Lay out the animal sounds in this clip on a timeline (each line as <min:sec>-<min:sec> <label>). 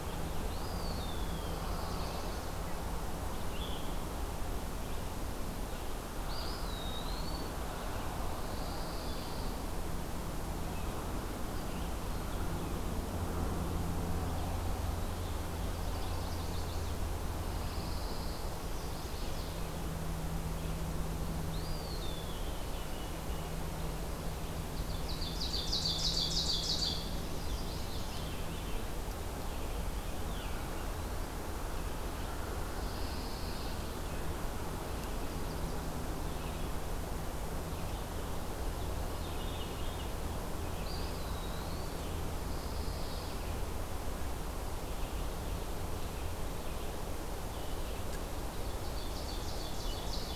0:00.0-0:03.8 Veery (Catharus fuscescens)
0:00.1-0:01.5 Eastern Wood-Pewee (Contopus virens)
0:01.4-0:02.4 Chestnut-sided Warbler (Setophaga pensylvanica)
0:06.0-0:07.6 Eastern Wood-Pewee (Contopus virens)
0:08.5-0:09.6 Pine Warbler (Setophaga pinus)
0:15.7-0:17.0 Chestnut-sided Warbler (Setophaga pensylvanica)
0:17.4-0:18.4 Pine Warbler (Setophaga pinus)
0:18.6-0:19.6 Chestnut-sided Warbler (Setophaga pensylvanica)
0:21.3-0:23.5 Eastern Wood-Pewee (Contopus virens)
0:24.6-0:27.2 Ovenbird (Seiurus aurocapilla)
0:27.3-0:28.4 Chestnut-sided Warbler (Setophaga pensylvanica)
0:28.0-0:28.8 Veery (Catharus fuscescens)
0:30.2-0:30.7 Veery (Catharus fuscescens)
0:32.8-0:33.7 Pine Warbler (Setophaga pinus)
0:36.3-0:50.4 Red-eyed Vireo (Vireo olivaceus)
0:38.8-0:40.2 Veery (Catharus fuscescens)
0:40.7-0:42.1 Eastern Wood-Pewee (Contopus virens)
0:42.3-0:43.5 Pine Warbler (Setophaga pinus)
0:48.6-0:50.4 Ovenbird (Seiurus aurocapilla)
0:49.8-0:50.4 Veery (Catharus fuscescens)